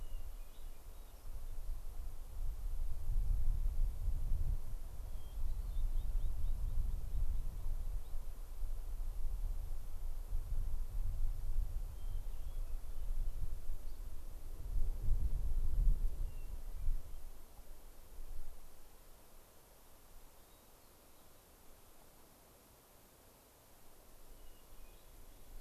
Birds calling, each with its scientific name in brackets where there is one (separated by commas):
American Pipit (Anthus rubescens), Hermit Thrush (Catharus guttatus), Dusky Flycatcher (Empidonax oberholseri)